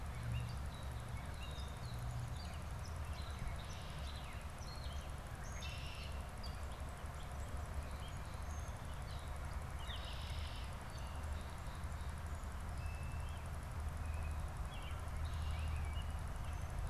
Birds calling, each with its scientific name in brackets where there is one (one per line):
Red-winged Blackbird (Agelaius phoeniceus)
Gray Catbird (Dumetella carolinensis)
American Robin (Turdus migratorius)